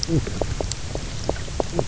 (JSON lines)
{"label": "biophony, knock croak", "recorder": "SoundTrap 300"}